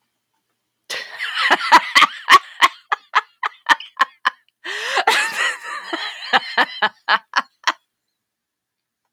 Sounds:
Laughter